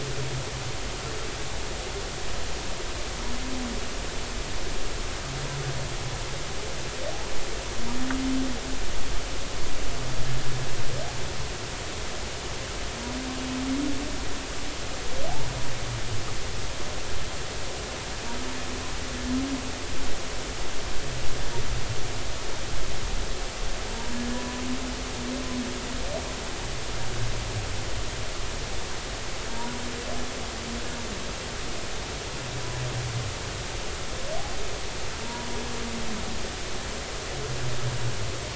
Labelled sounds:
24.3	24.6	humpback whale, 0.93 to 1.0 kHz
29.5	29.8	humpback whale, 0.90 to 0.99 kHz
35.2	35.5	humpback whale, 0.90 to 0.99 kHz

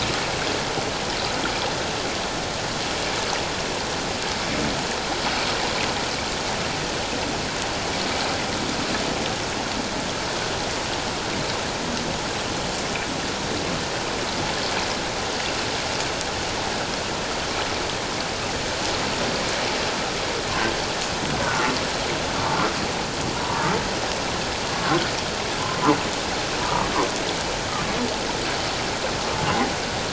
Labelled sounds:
21.4	21.7	humpback whale, 1.3 to 1.5 kHz
23.4	23.6	humpback whale, 0.91 to 1.0 kHz
24.7	25.0	humpback whale, 1.0 to 1.2 kHz
26.6	26.9	humpback whale, 0.88 to 1.0 kHz

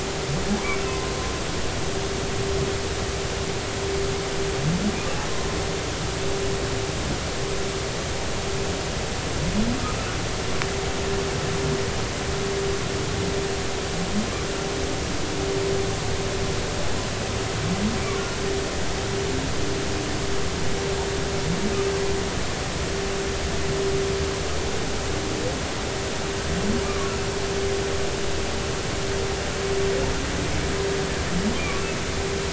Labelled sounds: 0.9	1.1	humpback whale, 0.99 to 1.1 kHz
26.8	27.1	humpback whale, 1.1 to 1.2 kHz

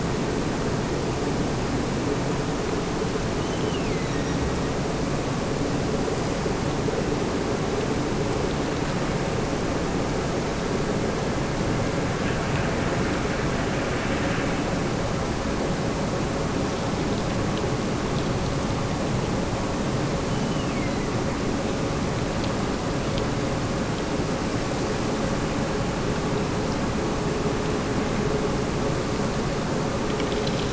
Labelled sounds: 3.3	4.9	killer whale, Bigg's (transient), Gulf of Alaska transient, 1.8 to 6.3 kHz
20.2	21.4	killer whale, Bigg's (transient), Gulf of Alaska transient, 1.7 to 3.2 kHz

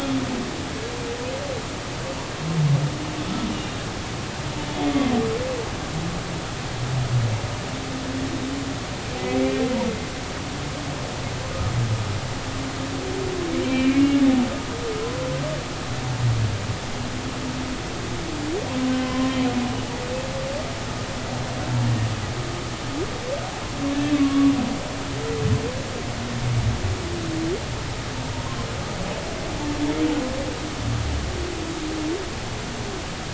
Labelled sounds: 9.4	9.6	humpback whale, 2.3 to 2.4 kHz
13.6	14.2	humpback whale, 2.3 to 2.9 kHz
19.0	19.3	humpback whale, 0.96 to 1.1 kHz
24.0	24.5	humpback whale, 1.1 to 2.7 kHz

